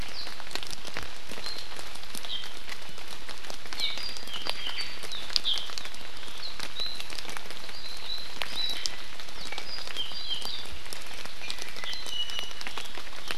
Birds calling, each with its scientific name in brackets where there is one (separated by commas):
Iiwi (Drepanis coccinea), Apapane (Himatione sanguinea), Hawaii Amakihi (Chlorodrepanis virens)